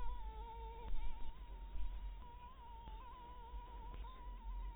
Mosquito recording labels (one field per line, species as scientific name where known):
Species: Anopheles harrisoni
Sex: female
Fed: blood-fed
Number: one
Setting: cup